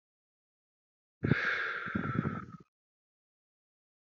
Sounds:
Sigh